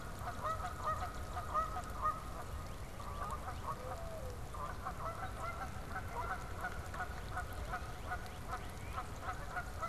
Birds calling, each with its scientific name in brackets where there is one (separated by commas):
Northern Cardinal (Cardinalis cardinalis), Canada Goose (Branta canadensis), Mourning Dove (Zenaida macroura)